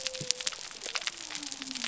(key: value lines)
label: biophony
recorder: SoundTrap 300